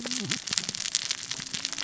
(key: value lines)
label: biophony, cascading saw
recorder: SoundTrap 600 or HydroMoth